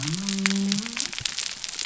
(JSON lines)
{"label": "biophony", "recorder": "SoundTrap 300"}